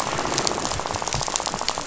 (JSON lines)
{"label": "biophony, rattle", "recorder": "SoundTrap 500"}